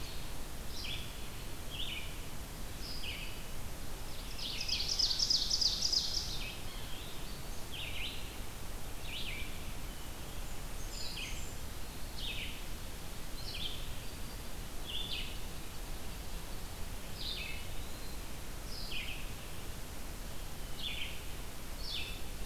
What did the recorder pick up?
Red-eyed Vireo, Ovenbird, Blackburnian Warbler, Black-throated Green Warbler, Eastern Wood-Pewee